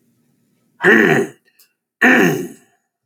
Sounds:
Throat clearing